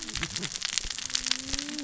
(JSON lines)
{"label": "biophony, cascading saw", "recorder": "SoundTrap 600 or HydroMoth"}